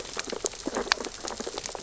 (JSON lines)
{"label": "biophony, sea urchins (Echinidae)", "recorder": "SoundTrap 600 or HydroMoth"}